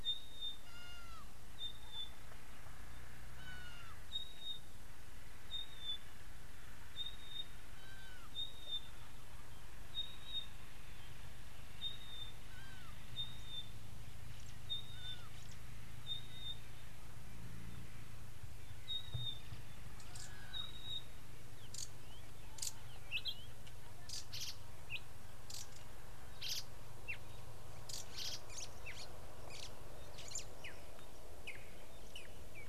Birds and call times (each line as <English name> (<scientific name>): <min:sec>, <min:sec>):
Red-backed Scrub-Robin (Cercotrichas leucophrys): 0:07.2, 0:19.1, 0:21.8, 0:24.4, 0:28.2
White-browed Sparrow-Weaver (Plocepasser mahali): 0:29.0
Red-and-yellow Barbet (Trachyphonus erythrocephalus): 0:30.6